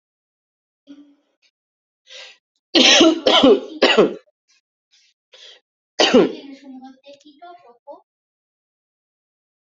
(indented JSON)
{
  "expert_labels": [
    {
      "quality": "good",
      "cough_type": "dry",
      "dyspnea": false,
      "wheezing": false,
      "stridor": false,
      "choking": false,
      "congestion": false,
      "nothing": true,
      "diagnosis": "upper respiratory tract infection",
      "severity": "mild"
    }
  ],
  "age": 28,
  "gender": "female",
  "respiratory_condition": false,
  "fever_muscle_pain": false,
  "status": "symptomatic"
}